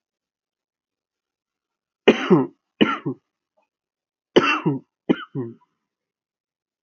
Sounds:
Cough